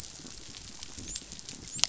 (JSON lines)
{"label": "biophony, dolphin", "recorder": "SoundTrap 500"}